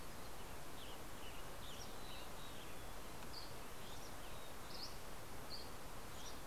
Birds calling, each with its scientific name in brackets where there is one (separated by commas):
Mountain Chickadee (Poecile gambeli), Dusky Flycatcher (Empidonax oberholseri), Western Tanager (Piranga ludoviciana)